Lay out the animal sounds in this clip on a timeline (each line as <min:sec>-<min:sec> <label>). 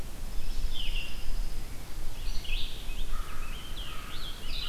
0:00.0-0:04.7 Red-eyed Vireo (Vireo olivaceus)
0:00.2-0:01.8 Pine Warbler (Setophaga pinus)
0:02.5-0:04.7 Scarlet Tanager (Piranga olivacea)
0:02.8-0:04.7 American Crow (Corvus brachyrhynchos)